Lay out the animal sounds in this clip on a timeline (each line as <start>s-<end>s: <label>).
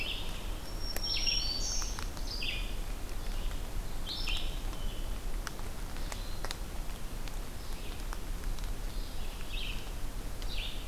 0.0s-10.9s: Red-eyed Vireo (Vireo olivaceus)
0.4s-2.1s: Black-throated Green Warbler (Setophaga virens)